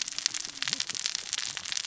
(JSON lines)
{"label": "biophony, cascading saw", "recorder": "SoundTrap 600 or HydroMoth"}